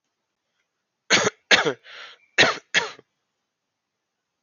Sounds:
Cough